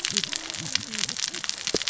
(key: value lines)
label: biophony, cascading saw
recorder: SoundTrap 600 or HydroMoth